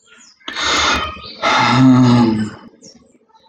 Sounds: Sigh